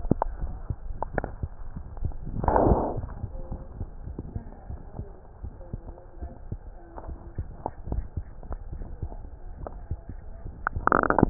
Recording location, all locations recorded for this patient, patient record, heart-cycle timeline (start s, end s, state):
aortic valve (AV)
aortic valve (AV)+pulmonary valve (PV)+tricuspid valve (TV)+mitral valve (MV)
#Age: Child
#Sex: Female
#Height: 76.0 cm
#Weight: 9.05 kg
#Pregnancy status: False
#Murmur: Absent
#Murmur locations: nan
#Most audible location: nan
#Systolic murmur timing: nan
#Systolic murmur shape: nan
#Systolic murmur grading: nan
#Systolic murmur pitch: nan
#Systolic murmur quality: nan
#Diastolic murmur timing: nan
#Diastolic murmur shape: nan
#Diastolic murmur grading: nan
#Diastolic murmur pitch: nan
#Diastolic murmur quality: nan
#Outcome: Abnormal
#Campaign: 2015 screening campaign
0.00	4.40	unannotated
4.40	4.68	diastole
4.68	4.82	S1
4.82	5.00	systole
5.00	5.10	S2
5.10	5.42	diastole
5.42	5.54	S1
5.54	5.70	systole
5.70	5.82	S2
5.82	6.18	diastole
6.18	6.32	S1
6.32	6.48	systole
6.48	6.60	S2
6.60	7.01	diastole
7.01	7.16	S1
7.16	7.33	systole
7.33	7.48	S2
7.48	7.86	diastole
7.86	8.04	S1
8.04	8.15	systole
8.15	8.28	S2
8.28	8.69	diastole
8.69	8.85	S1
8.85	8.99	systole
8.99	9.14	S2
9.14	9.57	diastole
9.57	9.72	S1
9.72	9.84	systole
9.84	10.00	S2
10.00	10.24	diastole
10.24	11.30	unannotated